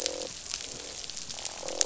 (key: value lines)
label: biophony, croak
recorder: SoundTrap 500